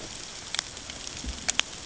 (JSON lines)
{"label": "ambient", "recorder": "HydroMoth"}